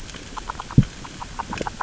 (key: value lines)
label: biophony, grazing
recorder: SoundTrap 600 or HydroMoth